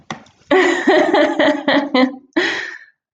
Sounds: Laughter